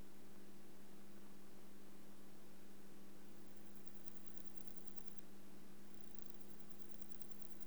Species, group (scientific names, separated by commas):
Parnassiana parnassica, Orthoptera